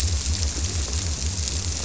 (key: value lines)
label: biophony
recorder: SoundTrap 300